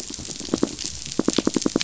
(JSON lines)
{"label": "biophony, knock", "recorder": "SoundTrap 500"}